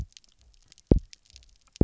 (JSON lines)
{"label": "biophony, double pulse", "recorder": "SoundTrap 300"}